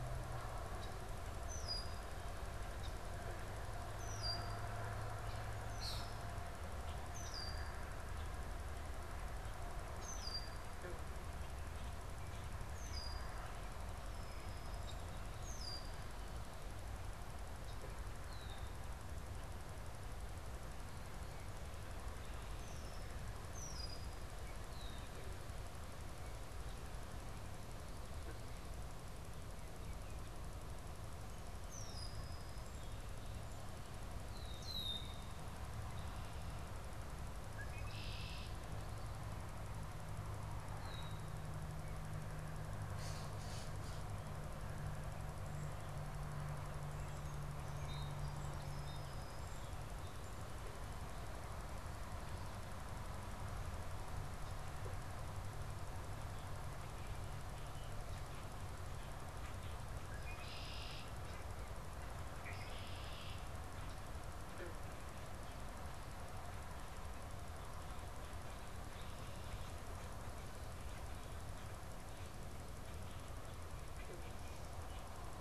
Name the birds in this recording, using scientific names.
Agelaius phoeniceus, unidentified bird, Melospiza melodia